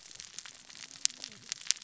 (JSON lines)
{"label": "biophony, cascading saw", "recorder": "SoundTrap 600 or HydroMoth"}